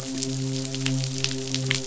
{"label": "biophony, midshipman", "recorder": "SoundTrap 500"}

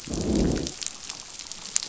{"label": "biophony, growl", "recorder": "SoundTrap 500"}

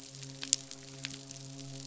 {"label": "biophony, midshipman", "recorder": "SoundTrap 500"}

